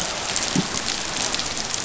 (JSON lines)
{"label": "biophony", "recorder": "SoundTrap 500"}